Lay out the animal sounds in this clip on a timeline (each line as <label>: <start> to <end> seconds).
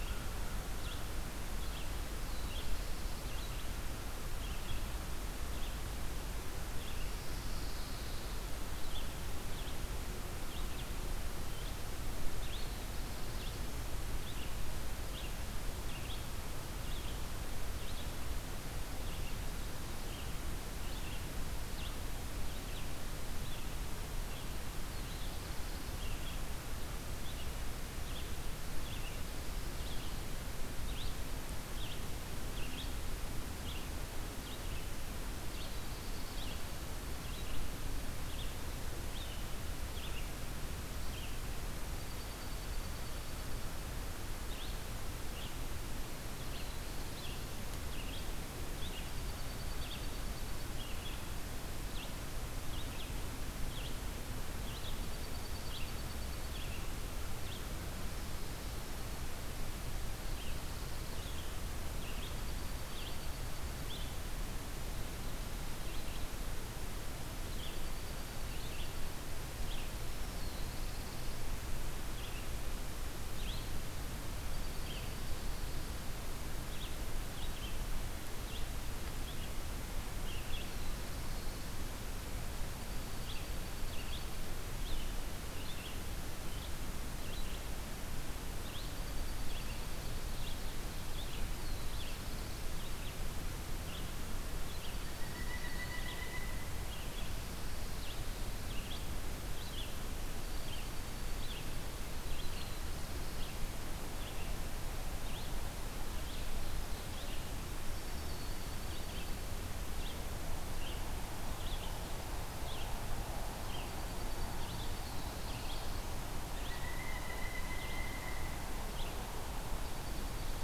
American Crow (Corvus brachyrhynchos): 0.0 to 1.1 seconds
Red-eyed Vireo (Vireo olivaceus): 0.0 to 109.3 seconds
Black-throated Blue Warbler (Setophaga caerulescens): 2.1 to 3.4 seconds
Pine Warbler (Setophaga pinus): 7.0 to 8.5 seconds
Black-throated Blue Warbler (Setophaga caerulescens): 12.4 to 14.0 seconds
Black-throated Blue Warbler (Setophaga caerulescens): 24.5 to 26.3 seconds
Black-throated Blue Warbler (Setophaga caerulescens): 35.2 to 36.6 seconds
Dark-eyed Junco (Junco hyemalis): 41.8 to 43.6 seconds
Dark-eyed Junco (Junco hyemalis): 49.0 to 50.7 seconds
Dark-eyed Junco (Junco hyemalis): 55.0 to 56.7 seconds
Black-throated Blue Warbler (Setophaga caerulescens): 60.0 to 61.5 seconds
Dark-eyed Junco (Junco hyemalis): 62.1 to 64.2 seconds
Dark-eyed Junco (Junco hyemalis): 67.1 to 69.2 seconds
Black-throated Blue Warbler (Setophaga caerulescens): 70.3 to 71.4 seconds
Dark-eyed Junco (Junco hyemalis): 74.4 to 76.3 seconds
Black-throated Blue Warbler (Setophaga caerulescens): 80.4 to 82.0 seconds
Dark-eyed Junco (Junco hyemalis): 82.5 to 84.3 seconds
Dark-eyed Junco (Junco hyemalis): 88.7 to 90.4 seconds
Dark-eyed Junco (Junco hyemalis): 91.3 to 92.9 seconds
Dark-eyed Junco (Junco hyemalis): 94.6 to 96.2 seconds
Pileated Woodpecker (Dryocopus pileatus): 95.1 to 96.9 seconds
Dark-eyed Junco (Junco hyemalis): 100.3 to 101.5 seconds
Black-throated Blue Warbler (Setophaga caerulescens): 102.2 to 103.7 seconds
Dark-eyed Junco (Junco hyemalis): 108.1 to 109.6 seconds
Red-eyed Vireo (Vireo olivaceus): 109.9 to 119.1 seconds
Dark-eyed Junco (Junco hyemalis): 113.1 to 115.0 seconds
Black-throated Blue Warbler (Setophaga caerulescens): 114.9 to 116.3 seconds
Pileated Woodpecker (Dryocopus pileatus): 116.3 to 118.7 seconds
Dark-eyed Junco (Junco hyemalis): 119.6 to 120.6 seconds